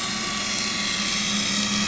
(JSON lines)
{"label": "anthrophony, boat engine", "recorder": "SoundTrap 500"}